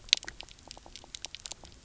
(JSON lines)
{"label": "biophony, knock croak", "recorder": "SoundTrap 300"}